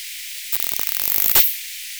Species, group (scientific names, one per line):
Poecilimon obesus
Orthoptera